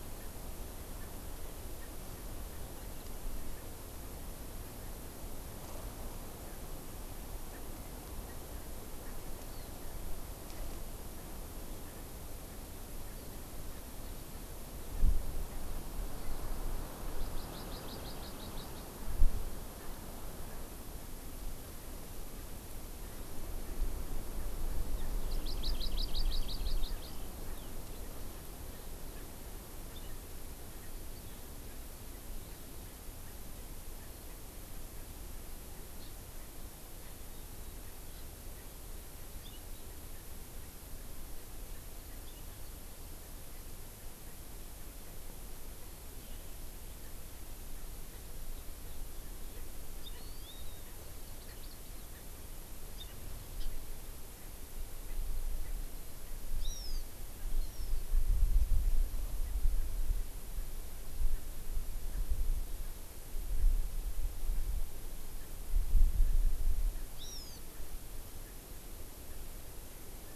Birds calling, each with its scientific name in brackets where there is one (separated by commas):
Hawaii Amakihi (Chlorodrepanis virens), Erckel's Francolin (Pternistis erckelii)